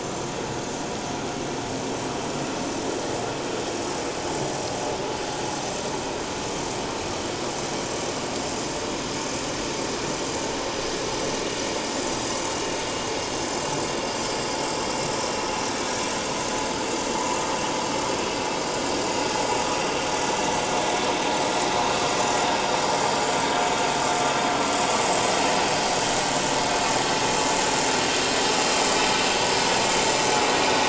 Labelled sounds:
10.1	10.4	vessel noise, 5.8 to 6.1 kHz
14.7	15.1	vessel noise, 5.2 to 7.6 kHz
16.4	16.8	vessel noise, 7.2 to 7.4 kHz

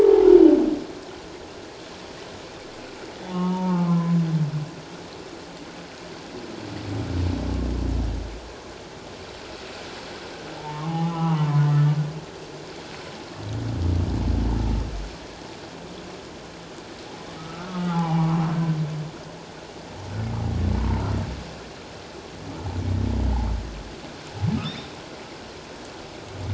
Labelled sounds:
0.0	0.3	humpback whale, 0.78 to 0.97 kHz
3.2	4.2	humpback whale, 0.78 to 3.0 kHz
10.6	11.7	humpback whale, 0.78 to 3.0 kHz
17.4	18.4	humpback whale, 0.78 to 1.5 kHz
20.8	21.1	humpback whale, 0.84 to 1.1 kHz

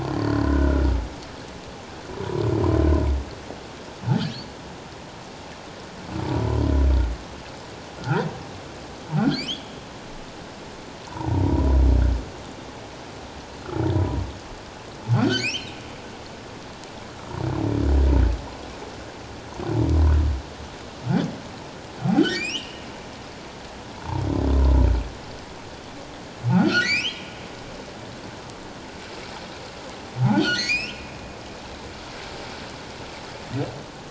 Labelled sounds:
0.1	0.8	humpback whale, 1.3 to 4.6 kHz
4.1	4.6	humpback whale, 2.8 to 4.7 kHz
6.3	6.6	humpback whale, 0.91 to 1.1 kHz
8.0	8.3	humpback whale, 1.2 to 1.7 kHz
9.2	9.7	humpback whale, 1.3 to 3.6 kHz
11.1	11.8	humpback whale, 0.84 to 1.1 kHz
14.0	14.2	humpback whale, 0.91 to 1.0 kHz
15.1	15.7	humpback whale, 1.3 to 6.3 kHz
22.3	22.8	humpback whale, 1.7 to 6.1 kHz
26.5	27.3	humpback whale, 1.2 to 6.2 kHz
30.2	31.0	humpback whale, 1.3 to 6.9 kHz

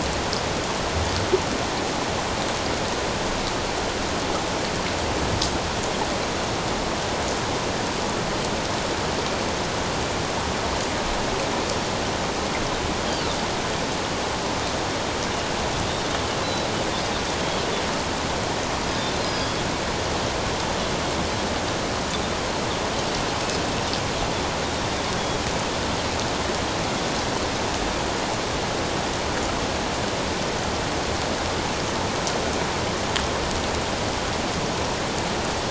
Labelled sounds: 16.4	16.7	Pacific white-sided dolphin, 3.8 to 4.1 kHz
18.9	19.5	Pacific white-sided dolphin, 3.5 to 5.1 kHz

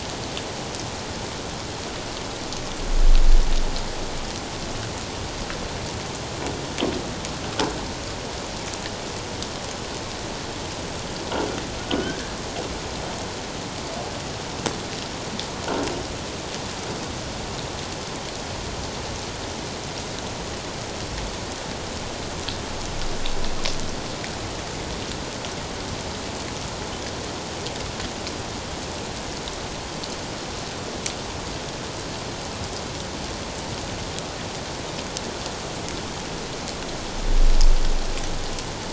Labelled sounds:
11.8	12.3	humpback whale, 1.4 to 3.3 kHz

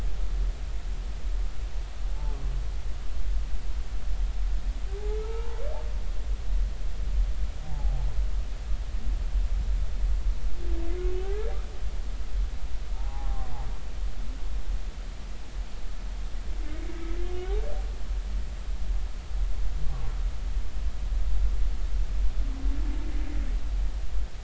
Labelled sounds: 5.2	5.6	humpback whale, 0.83 to 1.4 kHz
7.6	8.0	humpback whale, 0.80 to 0.93 kHz
11.2	11.5	humpback whale, 0.80 to 1.8 kHz
12.9	13.5	humpback whale, 0.80 to 1.1 kHz

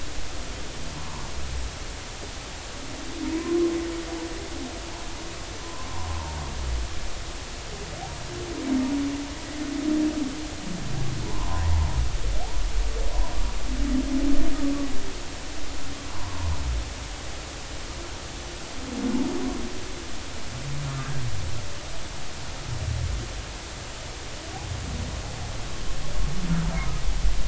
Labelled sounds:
1.0	1.3	humpback whale, 0.86 to 1.2 kHz
3.2	3.6	humpback whale, 0.90 to 1.1 kHz
5.6	5.9	humpback whale, 0.96 to 1.1 kHz
6.9	7.4	humpback whale, 0.86 to 1.1 kHz
11.3	11.6	humpback whale, 0.83 to 1.1 kHz
16.1	16.5	humpback whale, 0.90 to 1.1 kHz

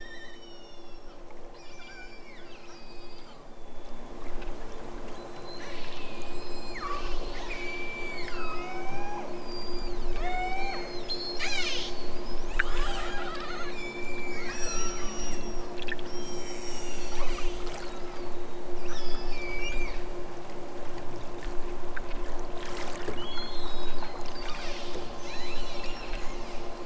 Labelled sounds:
0.1	1.1	killer whale, southern Alaska resident, 1.1 to 8.0 kHz
1.6	3.4	killer whale, southern Alaska resident, 1.1 to 7.7 kHz
5.1	12.0	killer whale, southern Alaska resident, 0.51 to 8.0 kHz
13.6	17.5	killer whale, southern Alaska resident, 0.55 to 8.0 kHz
18.8	20.0	killer whale, southern Alaska resident, 1.1 to 8.0 kHz
23.2	26.7	killer whale, southern Alaska resident, 1.2 to 8.0 kHz

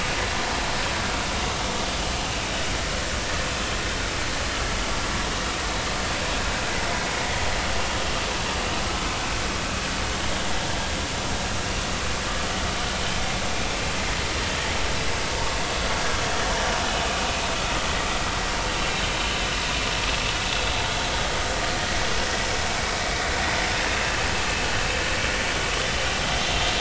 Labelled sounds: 11.6	11.8	vessel noise, 2.7 to 2.8 kHz
23.9	24.2	vessel noise, 2.6 to 2.7 kHz

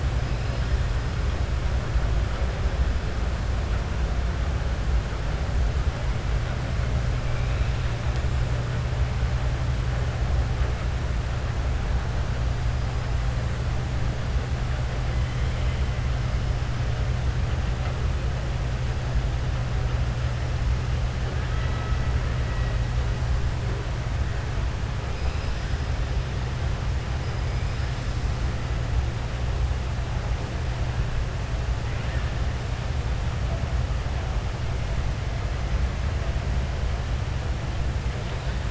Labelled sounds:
15.2	15.8	killer whale, southern resident, 2.0 to 4.1 kHz
31.9	32.3	killer whale, southern resident, 1.2 to 2.9 kHz

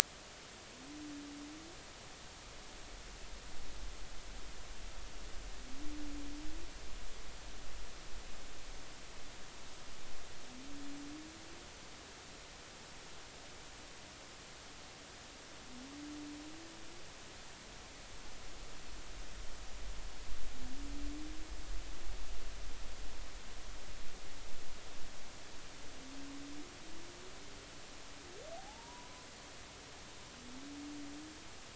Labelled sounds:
28.5	29.3	humpback whale, 0.80 to 1.1 kHz

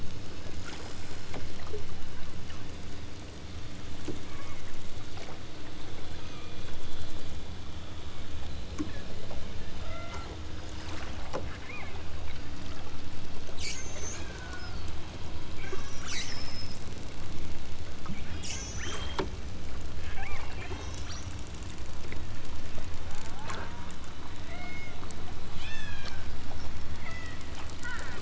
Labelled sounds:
2.0	2.4	killer whale, southern Alaska resident, 0.77 to 2.7 kHz
4.3	4.8	killer whale, southern Alaska resident, 0.69 to 3.5 kHz
5.8	6.3	killer whale, southern Alaska resident, 1.5 to 2.7 kHz
8.8	9.1	killer whale, southern Alaska resident, 0.94 to 2.4 kHz
9.8	10.5	killer whale, southern Alaska resident, 0.32 to 2.4 kHz
11.4	12.0	killer whale, southern Alaska resident, 1.2 to 2.7 kHz
13.6	14.9	killer whale, southern Alaska resident, 1.1 to 8.0 kHz
16.1	16.8	killer whale, southern Alaska resident, 1.5 to 8.0 kHz
18.4	19.3	killer whale, southern Alaska resident, 0.73 to 8.0 kHz
20.1	21.3	killer whale, southern Alaska resident, 0.47 to 8.0 kHz
23.2	24.0	killer whale, southern Alaska resident, 0.30 to 1.6 kHz
24.5	25.0	killer whale, southern Alaska resident, 0.39 to 7.5 kHz
25.6	26.2	killer whale, southern Alaska resident, 1.2 to 8.0 kHz
26.9	27.5	killer whale, southern Alaska resident, 1.4 to 7.5 kHz
27.8	28.2	killer whale, southern Alaska resident, 0.73 to 3.8 kHz

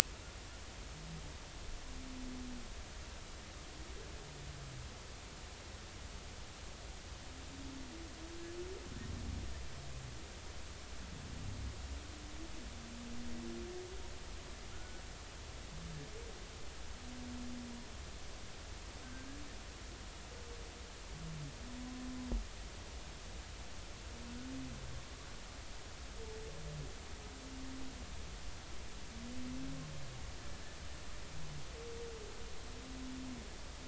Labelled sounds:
14.7	15.0	humpback whale, 1.3 to 1.5 kHz

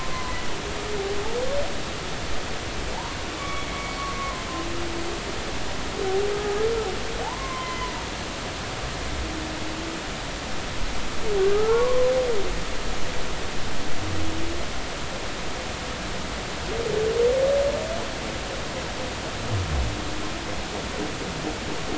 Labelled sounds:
3.4	3.7	humpback whale, 1.1 to 2.3 kHz
4.2	4.5	humpback whale, 0.99 to 1.2 kHz
7.2	7.9	humpback whale, 0.80 to 2.1 kHz
11.5	12.1	humpback whale, 0.96 to 1.5 kHz

